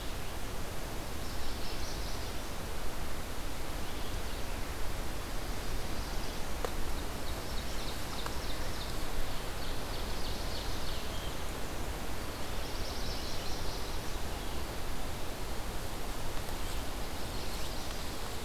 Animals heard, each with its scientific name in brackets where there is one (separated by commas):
Chestnut-sided Warbler (Setophaga pensylvanica), Ovenbird (Seiurus aurocapilla)